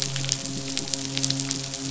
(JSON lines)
{"label": "biophony, midshipman", "recorder": "SoundTrap 500"}